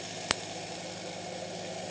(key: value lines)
label: anthrophony, boat engine
recorder: HydroMoth